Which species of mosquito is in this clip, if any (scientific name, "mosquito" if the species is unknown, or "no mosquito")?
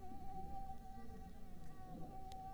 Mansonia africanus